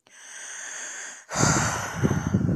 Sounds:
Sigh